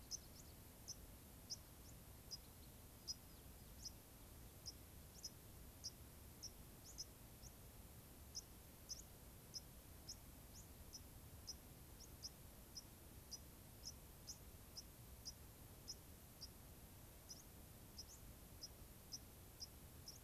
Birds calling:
White-crowned Sparrow (Zonotrichia leucophrys), unidentified bird

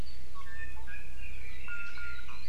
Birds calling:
Iiwi (Drepanis coccinea)

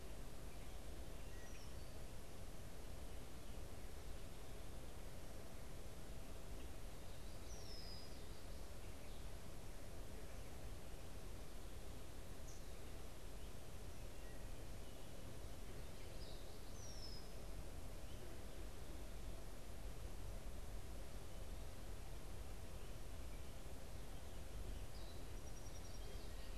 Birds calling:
Red-winged Blackbird (Agelaius phoeniceus), unidentified bird, Song Sparrow (Melospiza melodia)

